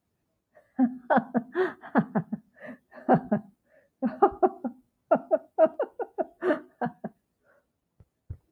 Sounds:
Laughter